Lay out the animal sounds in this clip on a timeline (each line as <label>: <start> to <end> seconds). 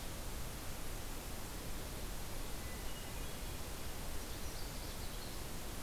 Hermit Thrush (Catharus guttatus): 2.5 to 3.7 seconds
Canada Warbler (Cardellina canadensis): 4.0 to 5.4 seconds